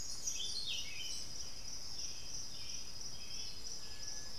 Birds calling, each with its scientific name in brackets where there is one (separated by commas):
Black-billed Thrush (Turdus ignobilis), Buff-throated Saltator (Saltator maximus)